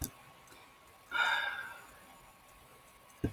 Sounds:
Sigh